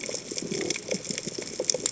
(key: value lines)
label: biophony
recorder: HydroMoth